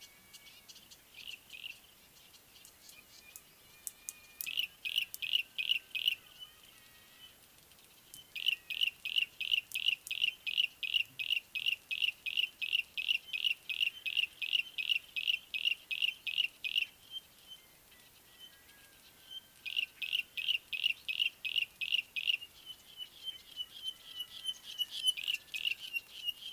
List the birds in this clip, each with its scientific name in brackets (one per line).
Pygmy Batis (Batis perkeo)
Yellow-breasted Apalis (Apalis flavida)